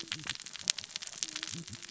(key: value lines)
label: biophony, cascading saw
recorder: SoundTrap 600 or HydroMoth